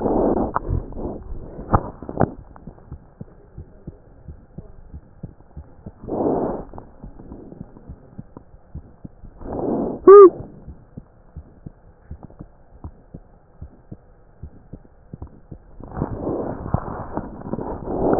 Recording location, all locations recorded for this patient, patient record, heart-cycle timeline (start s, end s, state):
pulmonary valve (PV)
aortic valve (AV)+pulmonary valve (PV)+tricuspid valve (TV)+mitral valve (MV)
#Age: Child
#Sex: Female
#Height: 76.0 cm
#Weight: 9.05 kg
#Pregnancy status: False
#Murmur: Absent
#Murmur locations: nan
#Most audible location: nan
#Systolic murmur timing: nan
#Systolic murmur shape: nan
#Systolic murmur grading: nan
#Systolic murmur pitch: nan
#Systolic murmur quality: nan
#Diastolic murmur timing: nan
#Diastolic murmur shape: nan
#Diastolic murmur grading: nan
#Diastolic murmur pitch: nan
#Diastolic murmur quality: nan
#Outcome: Abnormal
#Campaign: 2015 screening campaign
0.00	2.72	unannotated
2.72	2.88	diastole
2.88	2.98	S1
2.98	3.15	systole
3.15	3.25	S2
3.25	3.55	diastole
3.55	3.68	S1
3.68	3.86	systole
3.86	3.97	S2
3.97	4.24	diastole
4.24	4.38	S1
4.38	4.54	systole
4.54	4.64	S2
4.64	4.90	diastole
4.90	5.02	S1
5.02	5.21	systole
5.21	5.34	S2
5.34	5.54	diastole
5.54	5.64	S1
5.64	5.84	systole
5.84	5.95	S2
5.95	6.14	diastole
6.14	7.86	unannotated
7.86	7.98	S1
7.98	8.15	systole
8.15	8.24	S2
8.24	8.72	diastole
8.72	8.85	S1
8.85	9.01	systole
9.01	9.10	S2
9.10	9.37	diastole
9.37	10.64	unannotated
10.64	10.76	S1
10.76	10.94	systole
10.94	11.05	S2
11.05	11.33	diastole
11.33	11.48	S1
11.48	11.63	systole
11.63	11.74	S2
11.74	12.08	diastole
12.08	12.22	S1
12.22	12.38	systole
12.38	12.49	S2
12.49	12.82	diastole
12.82	12.94	S1
12.94	13.11	systole
13.11	13.23	S2
13.23	13.57	diastole
13.57	13.70	S1
13.70	13.90	systole
13.90	14.00	S2
14.00	14.40	diastole
14.40	14.54	S1
14.54	14.70	systole
14.70	14.80	S2
14.80	15.12	diastole
15.12	18.19	unannotated